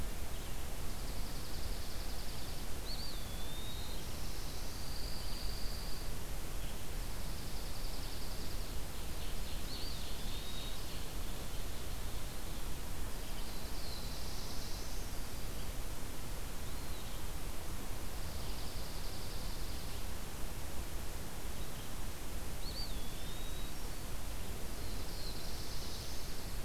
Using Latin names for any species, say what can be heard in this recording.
Junco hyemalis, Contopus virens, Setophaga caerulescens, Seiurus aurocapilla